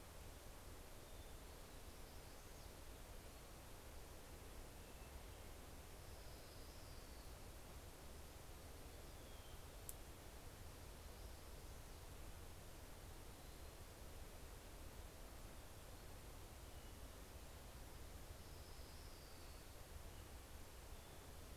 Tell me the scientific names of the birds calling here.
Piranga ludoviciana, Leiothlypis celata